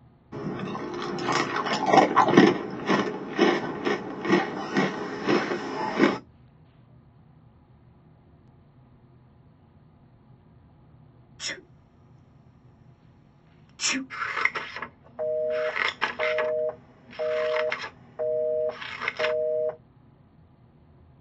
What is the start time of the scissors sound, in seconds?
14.1 s